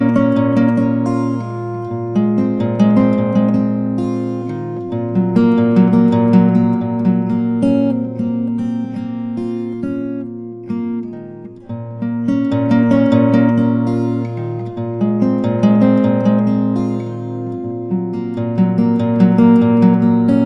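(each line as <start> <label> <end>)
0.0 Repeating rhythmic, steady, strong-paced guitar playing. 1.0
0.0 A guitar is playing continuously in a quiet indoor setting. 20.4
1.0 High-pitched guitar string vibrating. 1.6
2.1 Repeating rhythmic, steady, strong-paced guitar playing. 3.8
3.8 High-pitched guitar string vibrating. 4.9
5.3 Repeating rhythmic, steady, strong-paced guitar playing. 8.1
12.1 Repeating rhythmic, steady, strong-paced guitar playing. 14.0
13.9 High-pitched guitar string vibrating. 14.9
14.8 Repeating rhythmic, steady, strong-paced guitar playing. 16.7
16.6 High-pitched guitar string vibrating. 17.9
18.6 Repeating rhythmic, steady, strong-paced guitar playing. 20.4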